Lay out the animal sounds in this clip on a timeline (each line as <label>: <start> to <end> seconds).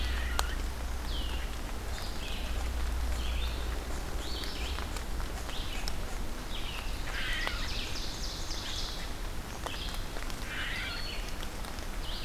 Red-eyed Vireo (Vireo olivaceus): 0.0 to 12.2 seconds
unknown mammal: 6.8 to 7.9 seconds
Ovenbird (Seiurus aurocapilla): 7.1 to 9.2 seconds
unknown mammal: 10.2 to 11.0 seconds